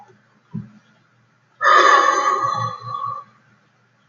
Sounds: Sigh